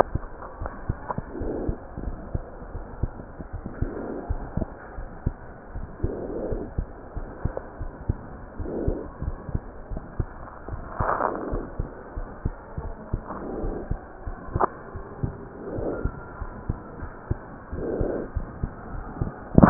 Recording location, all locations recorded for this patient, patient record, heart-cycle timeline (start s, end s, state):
aortic valve (AV)
aortic valve (AV)+pulmonary valve (PV)+tricuspid valve (TV)+mitral valve (MV)
#Age: Child
#Sex: Male
#Height: 92.0 cm
#Weight: 15.2 kg
#Pregnancy status: False
#Murmur: Absent
#Murmur locations: nan
#Most audible location: nan
#Systolic murmur timing: nan
#Systolic murmur shape: nan
#Systolic murmur grading: nan
#Systolic murmur pitch: nan
#Systolic murmur quality: nan
#Diastolic murmur timing: nan
#Diastolic murmur shape: nan
#Diastolic murmur grading: nan
#Diastolic murmur pitch: nan
#Diastolic murmur quality: nan
#Outcome: Normal
#Campaign: 2015 screening campaign
0.00	5.37	unannotated
5.37	5.71	diastole
5.71	5.86	S1
5.86	6.02	systole
6.02	6.16	S2
6.16	6.48	diastole
6.48	6.62	S1
6.62	6.77	systole
6.77	6.90	S2
6.90	7.15	diastole
7.15	7.27	S1
7.27	7.43	systole
7.43	7.54	S2
7.54	7.80	diastole
7.80	7.92	S1
7.92	8.07	systole
8.07	8.18	S2
8.18	8.57	diastole
8.57	8.74	S1
8.74	8.87	systole
8.87	8.98	S2
8.98	9.26	diastole
9.26	9.36	S1
9.36	9.52	systole
9.52	9.62	S2
9.62	9.92	diastole
9.92	10.02	S1
10.02	10.18	systole
10.18	10.28	S2
10.28	10.70	diastole
10.70	10.82	S1
10.82	10.99	systole
10.99	11.10	S2
11.10	11.50	diastole
11.50	11.64	S1
11.64	11.77	systole
11.77	11.90	S2
11.90	12.14	diastole
12.14	12.30	S1
12.30	12.42	systole
12.42	12.52	S2
12.52	12.80	diastole
12.80	12.94	S1
12.94	13.10	systole
13.10	13.24	S2
13.24	13.61	diastole
13.61	13.75	S1
13.75	13.89	systole
13.89	14.00	S2
14.00	14.25	diastole
14.25	14.37	S1
14.37	14.52	systole
14.52	14.64	S2
14.64	14.93	diastole
14.93	15.08	S1
15.08	15.21	systole
15.21	15.31	S2
15.31	15.74	diastole
15.74	15.90	S1
15.90	16.02	systole
16.02	16.14	S2
16.14	16.37	diastole
16.37	16.52	S1
16.52	16.66	systole
16.66	16.78	S2
16.78	17.00	diastole
17.00	17.10	S1
17.10	17.28	systole
17.28	17.38	S2
17.38	17.72	diastole
17.72	19.70	unannotated